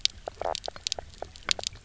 {"label": "biophony, knock croak", "recorder": "SoundTrap 300"}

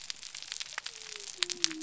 {"label": "biophony", "recorder": "SoundTrap 300"}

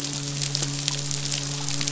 {"label": "biophony, midshipman", "recorder": "SoundTrap 500"}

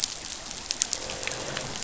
{"label": "biophony, croak", "recorder": "SoundTrap 500"}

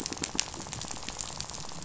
{"label": "biophony, rattle", "recorder": "SoundTrap 500"}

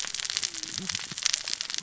{"label": "biophony, cascading saw", "recorder": "SoundTrap 600 or HydroMoth"}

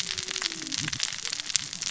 {"label": "biophony, cascading saw", "recorder": "SoundTrap 600 or HydroMoth"}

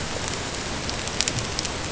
{"label": "ambient", "recorder": "HydroMoth"}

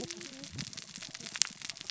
{"label": "biophony, cascading saw", "recorder": "SoundTrap 600 or HydroMoth"}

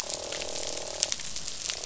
{"label": "biophony, croak", "recorder": "SoundTrap 500"}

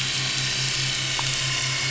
{"label": "anthrophony, boat engine", "recorder": "SoundTrap 500"}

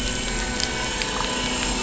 {"label": "anthrophony, boat engine", "recorder": "SoundTrap 500"}
{"label": "biophony", "recorder": "SoundTrap 500"}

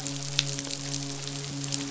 {"label": "biophony, midshipman", "recorder": "SoundTrap 500"}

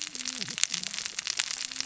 {"label": "biophony, cascading saw", "recorder": "SoundTrap 600 or HydroMoth"}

